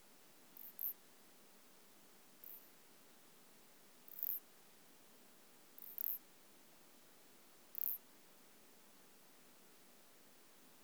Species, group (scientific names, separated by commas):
Isophya clara, Orthoptera